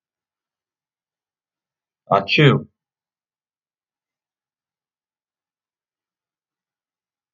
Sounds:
Sneeze